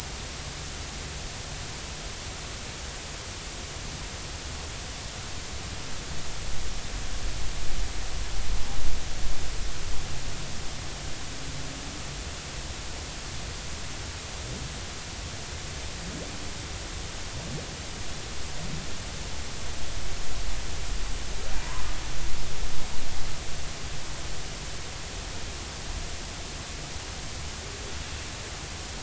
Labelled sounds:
21.6	21.8	humpback whale, 0.86 to 1.2 kHz

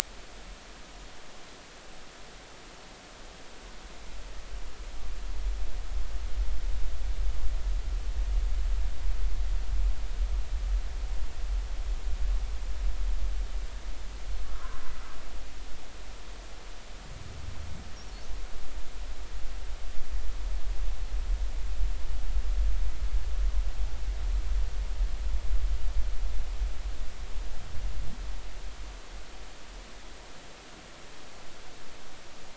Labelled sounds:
14.4	14.8	humpback whale, 0.96 to 1.5 kHz

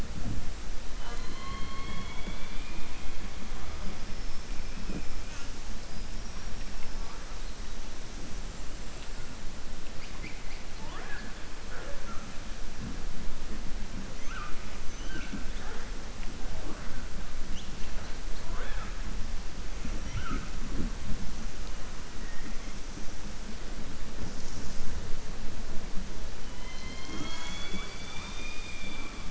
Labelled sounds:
0.9	3.0	killer whale, southern resident, 0.49 to 4.4 kHz

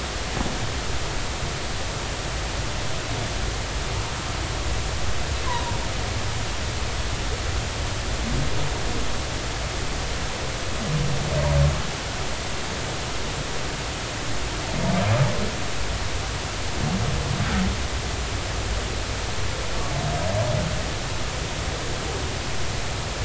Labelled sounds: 5.4	5.7	humpback whale, 0.90 to 1.1 kHz

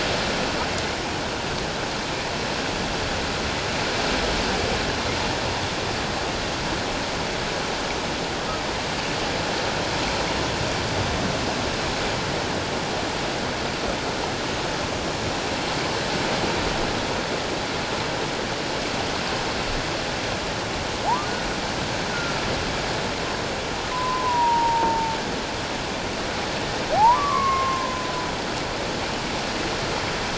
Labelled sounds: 23.9	25.2	humpback whale, 0.81 to 1.1 kHz
27.0	28.1	humpback whale, 0.78 to 2.2 kHz

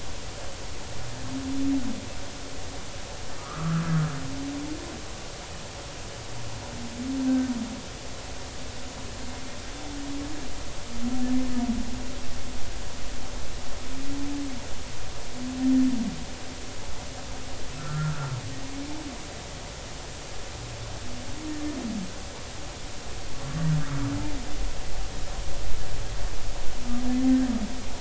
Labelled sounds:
3.4	3.8	humpback whale, 1.1 to 1.7 kHz
17.8	18.3	humpback whale, 1.2 to 1.5 kHz

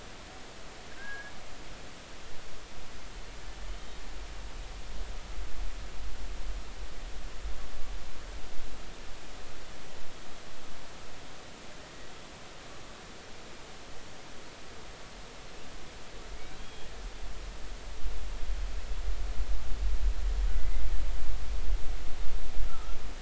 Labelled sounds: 1.0	1.3	killer whale, Bigg's (transient), 1.5 to 1.7 kHz
3.7	4.0	killer whale, Bigg's (transient), 3.0 to 3.2 kHz
16.3	16.9	killer whale, Bigg's (transient), 2.0 to 3.4 kHz
20.5	20.8	killer whale, Bigg's (transient), 2.0 to 2.1 kHz
22.7	23.0	killer whale, Bigg's (transient), 1.2 to 1.4 kHz

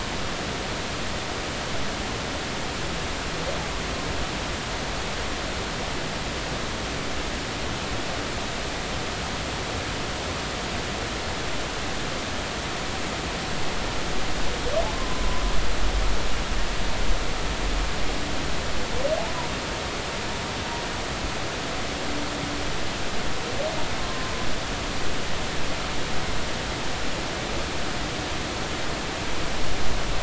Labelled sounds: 15.0	15.2	humpback whale, 0.99 to 1.1 kHz
24.0	24.3	humpback whale, 0.99 to 1.1 kHz

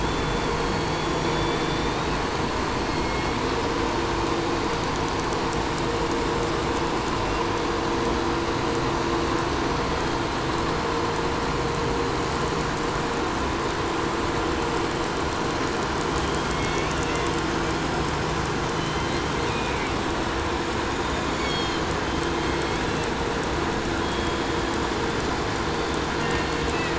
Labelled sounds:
0.0	2.4	killer whale, 1.7 to 8.0 kHz
2.5	3.8	killer whale, southern resident, 1.8 to 6.0 kHz
6.7	7.5	killer whale, 2.3 to 3.1 kHz
16.0	17.4	killer whale, southern resident, 1.2 to 4.6 kHz
18.6	20.0	killer whale, southern resident, 1.5 to 6.3 kHz
21.1	21.9	killer whale, 1.6 to 7.5 kHz
21.9	23.2	killer whale, southern resident, J pod, call S01, 1.9 to 6.1 kHz
23.9	25.1	killer whale, 3.1 to 4.5 kHz
26.1	26.9	killer whale, southern resident, 1.4 to 4.8 kHz

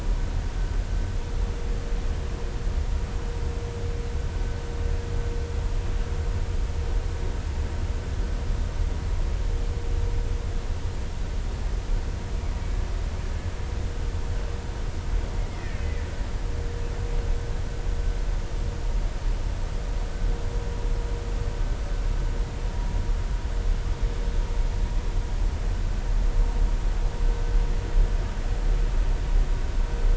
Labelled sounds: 15.5	15.8	killer whale, Bigg's (transient), 1.7 to 2.2 kHz

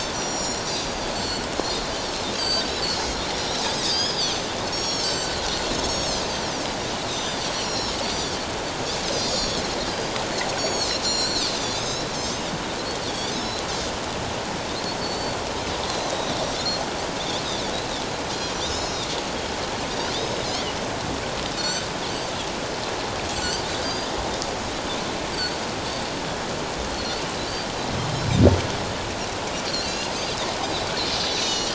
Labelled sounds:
0.0	6.5	Pacific white-sided dolphin, 1.5 to 7.9 kHz
7.1	8.4	Pacific white-sided dolphin, 3.4 to 7.5 kHz
9.0	10.2	Pacific white-sided dolphin, 4.0 to 7.0 kHz
10.6	13.7	Pacific white-sided dolphin, 3.3 to 7.9 kHz
15.0	16.4	Pacific white-sided dolphin, 3.6 to 4.6 kHz
18.5	19.1	Pacific white-sided dolphin, 3.4 to 7.2 kHz
20.1	20.4	Pacific white-sided dolphin, 4.8 to 5.3 kHz
21.6	21.9	Pacific white-sided dolphin, 1.4 to 7.8 kHz
23.3	24.1	Pacific white-sided dolphin, 2.8 to 7.8 kHz
25.3	25.6	Pacific white-sided dolphin, 4.3 to 4.8 kHz
26.9	27.2	Pacific white-sided dolphin, 4.1 to 4.6 kHz
29.6	30.1	Pacific white-sided dolphin, 2.7 to 5.1 kHz
31.1	31.7	Pacific white-sided dolphin, 2.8 to 6.8 kHz

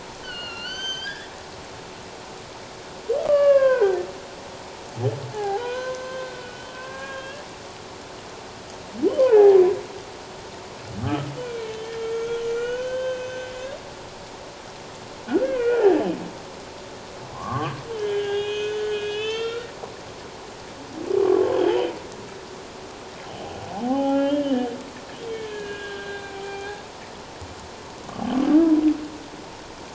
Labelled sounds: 0.2	1.3	humpback whale, 1.3 to 6.3 kHz
3.2	4.0	humpback whale, 0.94 to 3.1 kHz
5.3	7.5	humpback whale, 0.78 to 6.3 kHz
9.1	9.6	humpback whale, 0.78 to 3.2 kHz
11.0	13.5	humpback whale, 1.1 to 6.5 kHz
15.3	16.0	humpback whale, 1.3 to 2.8 kHz
17.3	19.7	humpback whale, 0.78 to 6.6 kHz
21.5	21.9	humpback whale, 2.9 to 3.4 kHz
23.8	24.7	humpback whale, 0.78 to 3.3 kHz
25.3	26.7	humpback whale, 0.78 to 4.1 kHz

